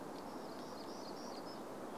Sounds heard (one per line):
warbler song